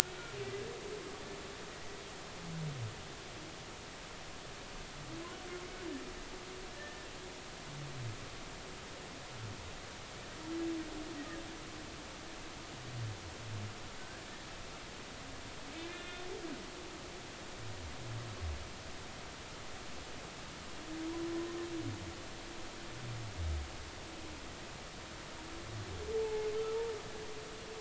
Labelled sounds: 6.8	7.1	humpback whale, 1.7 to 1.9 kHz
15.7	16.3	humpback whale, 1.3 to 3.6 kHz
26.2	26.5	humpback whale, 0.80 to 0.93 kHz

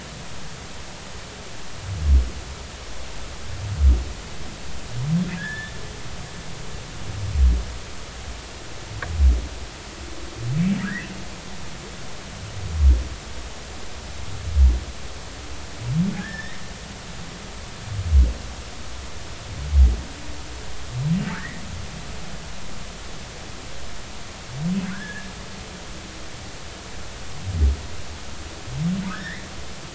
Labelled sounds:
5.4	5.7	humpback whale, 1.5 to 3.7 kHz
10.8	11.1	humpback whale, 1.2 to 2.1 kHz
16.1	16.6	humpback whale, 1.5 to 2.1 kHz
21.3	21.6	humpback whale, 1.1 to 2.1 kHz
24.9	25.3	humpback whale, 1.4 to 1.8 kHz
29.1	29.5	humpback whale, 1.4 to 2.2 kHz

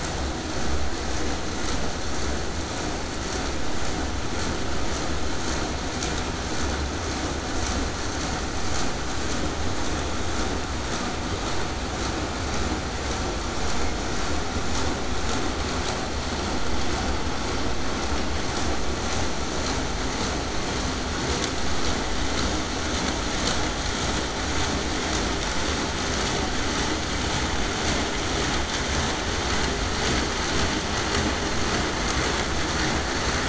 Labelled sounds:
28.5	33.4	vessel noise, 0 to 8.0 kHz

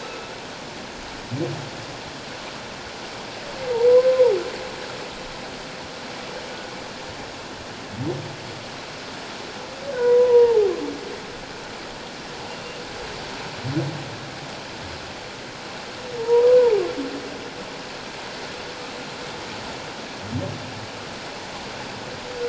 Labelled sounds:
3.9	4.4	humpback whale, 0.78 to 1.1 kHz
10.0	10.7	humpback whale, 0.78 to 1.0 kHz
16.2	16.6	humpback whale, 0.84 to 1.1 kHz

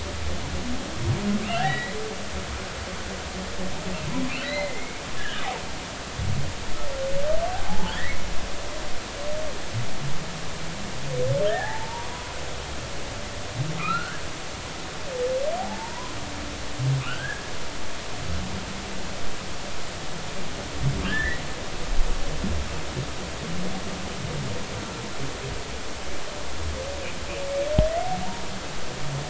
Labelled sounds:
1.4	2.0	humpback whale, 1.5 to 4.2 kHz
4.4	5.4	humpback whale, 1.5 to 4.2 kHz
7.5	8.3	humpback whale, 0.80 to 2.3 kHz
11.5	12.1	humpback whale, 0.80 to 1.9 kHz
13.1	14.2	humpback whale, 0.93 to 1.7 kHz
15.6	16.2	humpback whale, 0.80 to 1.1 kHz
17.0	17.5	humpback whale, 1.1 to 3.4 kHz
21.1	21.4	humpback whale, 1.5 to 2.0 kHz

